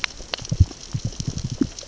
{"label": "biophony, knock", "recorder": "SoundTrap 600 or HydroMoth"}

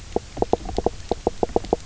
{"label": "biophony, knock croak", "recorder": "SoundTrap 300"}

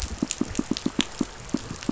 {"label": "biophony, pulse", "recorder": "SoundTrap 500"}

